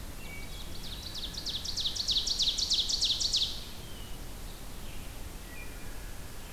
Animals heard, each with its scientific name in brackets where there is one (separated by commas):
Wood Thrush (Hylocichla mustelina), Ovenbird (Seiurus aurocapilla)